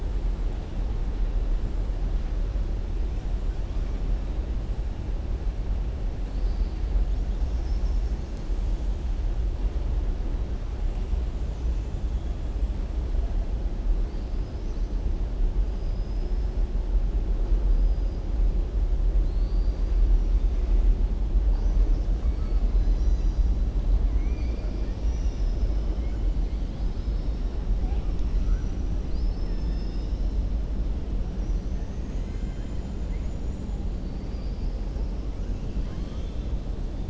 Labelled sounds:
15.7	16.5	killer whale, southern resident, 4.8 to 5.5 kHz
19.2	19.9	killer whale, southern resident, 3.7 to 5.7 kHz
24.0	25.4	killer whale, southern resident, 1.4 to 3.7 kHz
29.0	30.4	killer whale, southern resident, 1.8 to 6.2 kHz
32.0	32.8	killer whale, southern resident, 1.5 to 3.1 kHz
35.5	36.5	killer whale, southern resident, 1.1 to 6.5 kHz

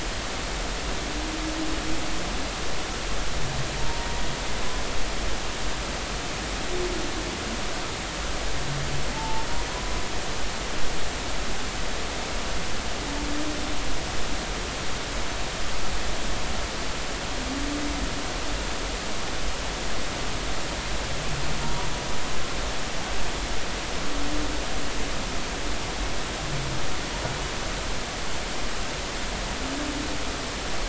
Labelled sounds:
3.8	4.1	humpback whale, 0.90 to 0.99 kHz
9.1	9.5	humpback whale, 0.83 to 0.93 kHz

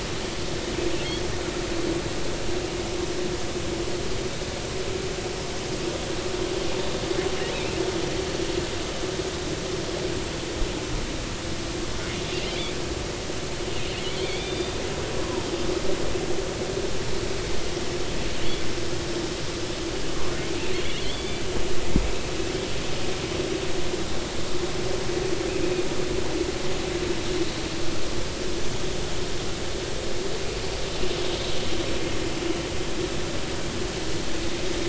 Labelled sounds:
14.1	14.8	killer whale, offshore, 2.1 to 3.7 kHz
21.0	21.4	killer whale, offshore, 3.0 to 4.7 kHz

